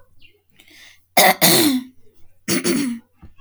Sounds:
Throat clearing